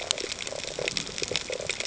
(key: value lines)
label: ambient
recorder: HydroMoth